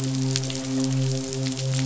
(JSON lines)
{"label": "biophony, midshipman", "recorder": "SoundTrap 500"}